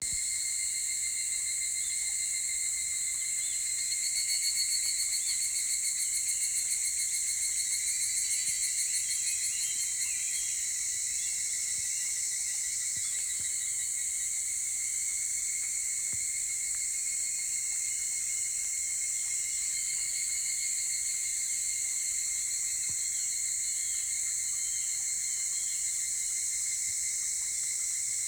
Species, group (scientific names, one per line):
Tanna japonensis
Cicadidae